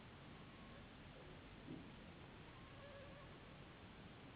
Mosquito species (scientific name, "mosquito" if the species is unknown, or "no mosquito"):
Anopheles gambiae s.s.